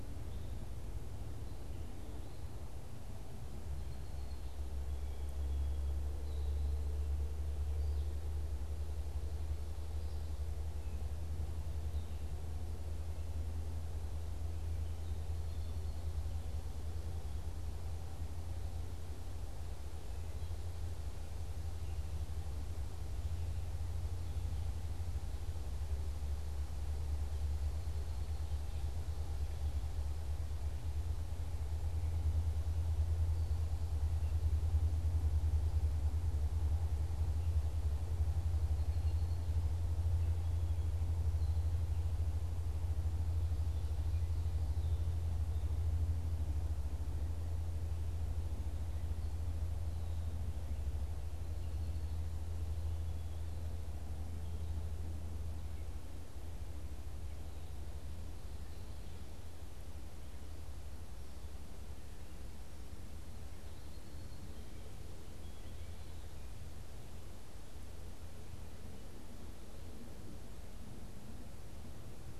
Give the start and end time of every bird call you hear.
3.8s-6.2s: Song Sparrow (Melospiza melodia)
27.4s-30.0s: Song Sparrow (Melospiza melodia)
38.6s-41.1s: Song Sparrow (Melospiza melodia)
63.5s-66.7s: Song Sparrow (Melospiza melodia)

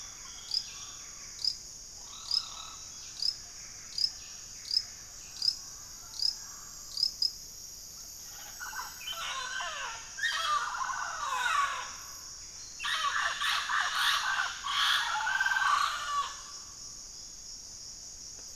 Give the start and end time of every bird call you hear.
0.0s-6.6s: Buff-breasted Wren (Cantorchilus leucotis)
0.0s-18.6s: Mealy Parrot (Amazona farinosa)

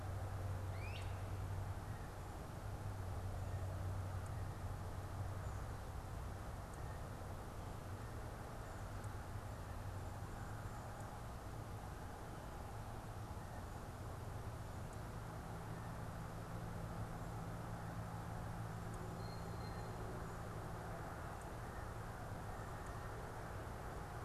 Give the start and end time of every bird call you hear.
0.6s-1.3s: Great Crested Flycatcher (Myiarchus crinitus)
18.9s-20.1s: Blue Jay (Cyanocitta cristata)

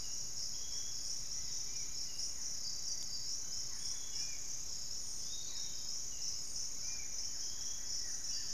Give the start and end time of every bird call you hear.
0.0s-8.5s: Piratic Flycatcher (Legatus leucophaius)
0.0s-8.5s: Spot-winged Antshrike (Pygiptila stellaris)
3.1s-8.5s: Barred Forest-Falcon (Micrastur ruficollis)
7.6s-8.5s: Buff-throated Woodcreeper (Xiphorhynchus guttatus)

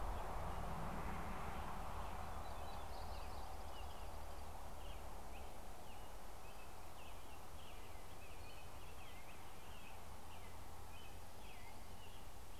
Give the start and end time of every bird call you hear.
2.0s-3.6s: Yellow-rumped Warbler (Setophaga coronata)
2.3s-12.6s: American Robin (Turdus migratorius)
3.2s-4.9s: Dark-eyed Junco (Junco hyemalis)
8.0s-9.1s: Townsend's Solitaire (Myadestes townsendi)
10.2s-12.2s: Dark-eyed Junco (Junco hyemalis)

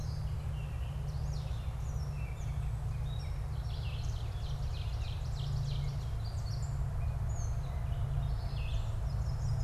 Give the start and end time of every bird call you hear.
0.0s-9.6s: Gray Catbird (Dumetella carolinensis)
3.7s-6.3s: Ovenbird (Seiurus aurocapilla)
8.5s-9.6s: Yellow Warbler (Setophaga petechia)

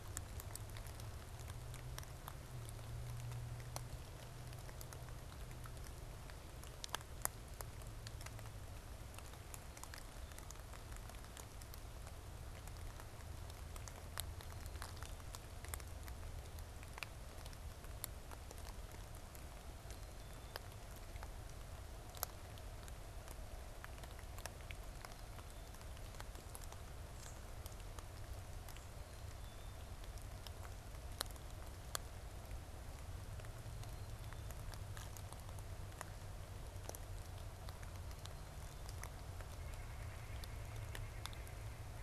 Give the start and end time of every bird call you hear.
39.4s-42.0s: White-breasted Nuthatch (Sitta carolinensis)

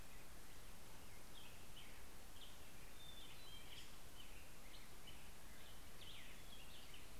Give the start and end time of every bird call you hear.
1.1s-7.2s: Black-headed Grosbeak (Pheucticus melanocephalus)
2.4s-4.4s: Hermit Thrush (Catharus guttatus)

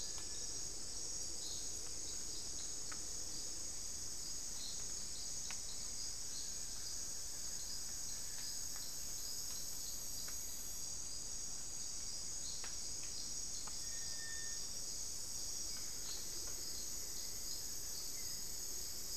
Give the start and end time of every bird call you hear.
6.2s-9.6s: Buff-throated Woodcreeper (Xiphorhynchus guttatus)

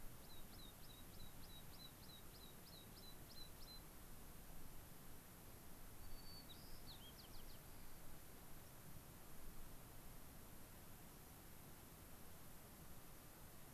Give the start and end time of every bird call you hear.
0.0s-3.9s: American Pipit (Anthus rubescens)
6.0s-8.0s: White-crowned Sparrow (Zonotrichia leucophrys)

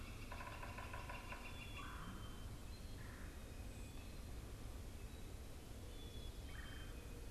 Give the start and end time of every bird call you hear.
0.0s-1.9s: American Robin (Turdus migratorius)
0.1s-1.6s: Yellow-bellied Sapsucker (Sphyrapicus varius)
1.4s-7.3s: Black-capped Chickadee (Poecile atricapillus)
1.7s-2.5s: Red-bellied Woodpecker (Melanerpes carolinus)
6.3s-7.3s: Red-bellied Woodpecker (Melanerpes carolinus)

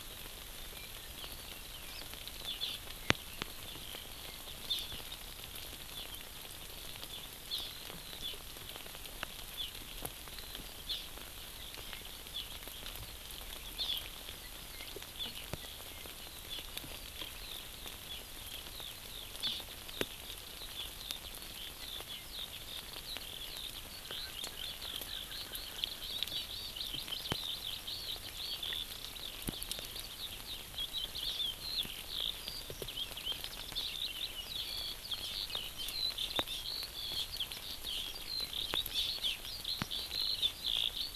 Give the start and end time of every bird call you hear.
2.4s-2.8s: Hawaii Amakihi (Chlorodrepanis virens)
4.7s-4.9s: Hawaii Amakihi (Chlorodrepanis virens)
7.5s-7.7s: Hawaii Amakihi (Chlorodrepanis virens)
10.9s-11.1s: Hawaii Amakihi (Chlorodrepanis virens)
13.8s-14.0s: Hawaii Amakihi (Chlorodrepanis virens)
15.2s-15.3s: Hawaii Amakihi (Chlorodrepanis virens)
16.5s-16.7s: Hawaii Amakihi (Chlorodrepanis virens)
17.4s-41.2s: Eurasian Skylark (Alauda arvensis)
19.4s-19.6s: Hawaii Amakihi (Chlorodrepanis virens)

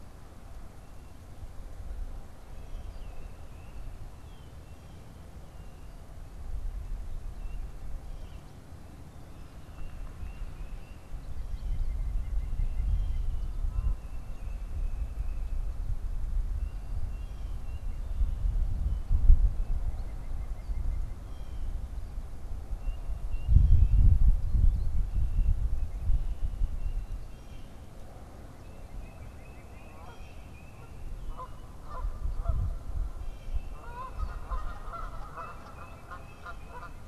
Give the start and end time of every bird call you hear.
11.3s-13.4s: White-breasted Nuthatch (Sitta carolinensis)
19.6s-21.4s: White-breasted Nuthatch (Sitta carolinensis)
21.1s-27.9s: Blue Jay (Cyanocitta cristata)
28.7s-30.3s: White-breasted Nuthatch (Sitta carolinensis)
30.5s-37.1s: Canada Goose (Branta canadensis)
35.1s-37.1s: Tufted Titmouse (Baeolophus bicolor)

